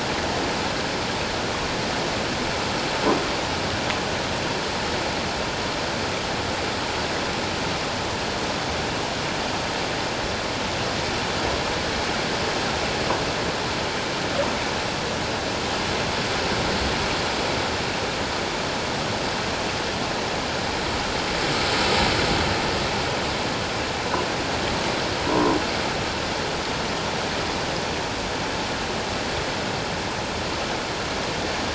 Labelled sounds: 25.3	25.6	croaking sound likely from a nearby submerged object, 0.91 to 1.1 kHz

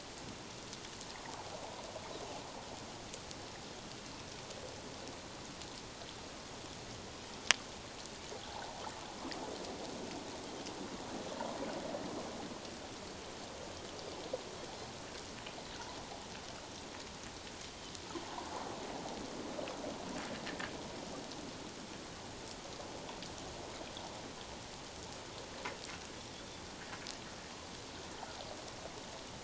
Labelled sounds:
8.5	8.7	water noise, 0.78 to 1.0 kHz

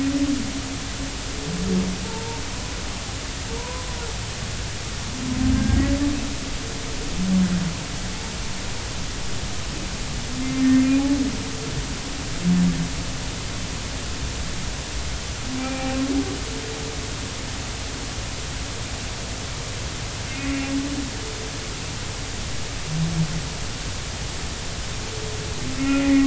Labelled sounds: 2.0	2.4	humpback whale, 0.83 to 0.99 kHz
3.6	3.9	humpback whale, 0.90 to 1.1 kHz
5.5	5.8	humpback whale, 1.5 to 1.7 kHz
10.4	10.7	humpback whale, 2.0 to 2.1 kHz
15.6	16.0	humpback whale, 0.80 to 2.5 kHz
20.5	20.8	humpback whale, 2.7 to 2.8 kHz
25.8	26.2	humpback whale, 1.3 to 2.1 kHz

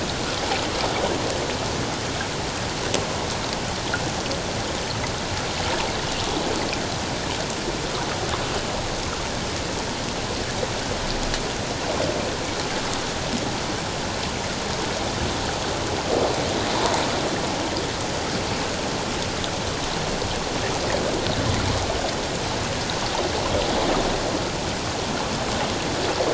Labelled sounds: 16.7	17.0	water noise, 0.78 to 1.1 kHz

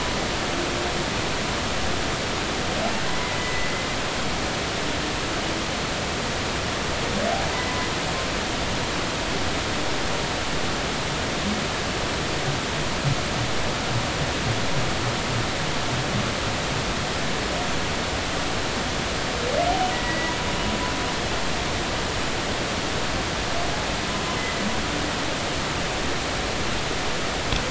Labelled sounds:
3.4	3.7	humpback whale, 1.9 to 2.0 kHz
19.9	20.3	humpback whale, 1.9 to 2.0 kHz

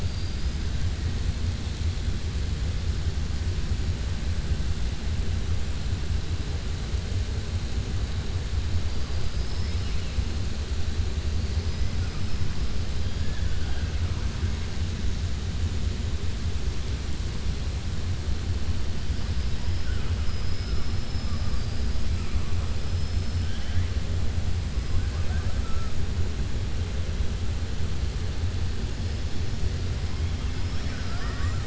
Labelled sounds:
0.0	0.6	killer whale, southern resident, 3.8 to 5.1 kHz
13.1	13.9	killer whale, southern resident, 0.71 to 3.4 kHz
20.2	21.9	killer whale, southern resident, 4.6 to 5.4 kHz
24.9	25.9	killer whale, southern resident, 0.56 to 2.5 kHz
30.5	31.6	killer whale, southern resident, 0.72 to 5.8 kHz

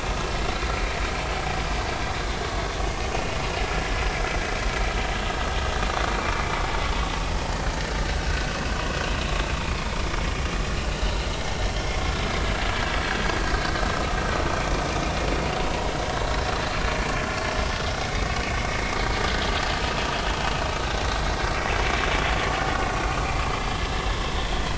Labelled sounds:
3.1	3.4	vessel noise, 2.7 to 2.9 kHz
5.9	6.1	vessel noise, 1.1 to 1.3 kHz
8.3	8.6	vessel noise, 1.4 to 1.6 kHz
13.9	14.2	vessel noise, 1.2 to 1.3 kHz
16.1	16.4	vessel noise, 3.8 to 3.9 kHz
18.0	18.3	vessel noise, 2.1 to 2.3 kHz
23.7	24.0	vessel noise, 1.6 to 1.8 kHz

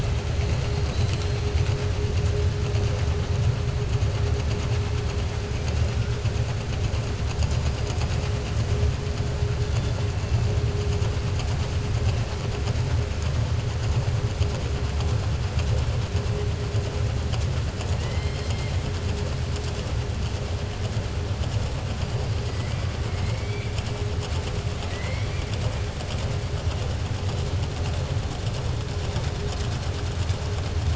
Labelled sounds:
24.7	25.6	killer whale, southern resident, 1.0 to 5.7 kHz

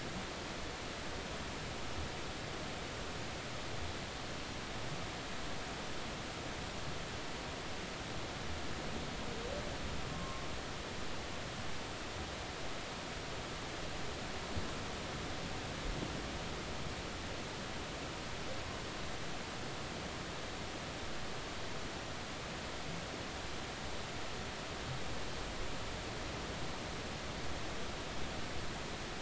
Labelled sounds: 10.1	10.4	humpback whale, 1.0 to 1.1 kHz

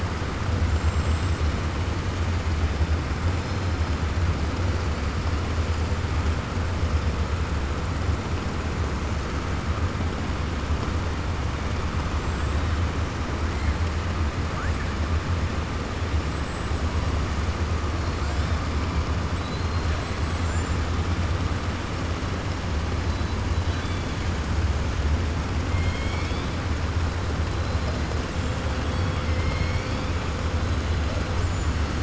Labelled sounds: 0.6	1.4	killer whale, 6.5 to 8.0 kHz
12.1	12.6	killer whale, 7.3 to 7.7 kHz
19.9	20.8	killer whale, 6.9 to 8.0 kHz
25.7	26.5	killer whale, 2.1 to 5.6 kHz

